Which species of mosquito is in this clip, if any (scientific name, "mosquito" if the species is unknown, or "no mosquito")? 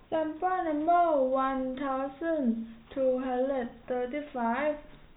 no mosquito